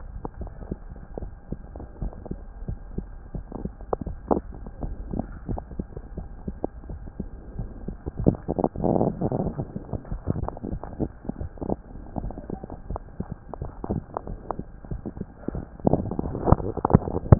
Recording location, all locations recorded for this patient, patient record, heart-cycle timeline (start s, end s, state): mitral valve (MV)
aortic valve (AV)+pulmonary valve (PV)+tricuspid valve (TV)+mitral valve (MV)
#Age: Child
#Sex: Male
#Height: 117.0 cm
#Weight: 23.1 kg
#Pregnancy status: False
#Murmur: Absent
#Murmur locations: nan
#Most audible location: nan
#Systolic murmur timing: nan
#Systolic murmur shape: nan
#Systolic murmur grading: nan
#Systolic murmur pitch: nan
#Systolic murmur quality: nan
#Diastolic murmur timing: nan
#Diastolic murmur shape: nan
#Diastolic murmur grading: nan
#Diastolic murmur pitch: nan
#Diastolic murmur quality: nan
#Outcome: Normal
#Campaign: 2015 screening campaign
0.00	1.98	unannotated
1.98	2.10	S1
2.10	2.26	systole
2.26	2.38	S2
2.38	2.61	diastole
2.61	2.76	S1
2.76	2.94	systole
2.94	3.06	S2
3.06	3.32	diastole
3.32	3.42	S1
3.42	3.62	systole
3.62	3.74	S2
3.74	4.02	diastole
4.02	4.16	S1
4.16	4.30	systole
4.30	4.45	S2
4.45	4.79	diastole
4.79	4.96	S1
4.96	5.10	systole
5.10	5.26	S2
5.26	5.45	diastole
5.45	5.60	S1
5.60	5.75	systole
5.75	5.88	S2
5.88	6.13	diastole
6.13	6.26	S1
6.26	6.44	systole
6.44	6.58	S2
6.58	6.86	diastole
6.86	6.98	S1
6.98	7.16	systole
7.16	7.30	S2
7.30	7.56	diastole
7.56	7.70	S1
7.70	7.85	systole
7.85	7.96	S2
7.96	17.39	unannotated